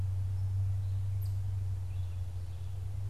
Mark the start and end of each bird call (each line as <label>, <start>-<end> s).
Red-eyed Vireo (Vireo olivaceus), 0.0-3.1 s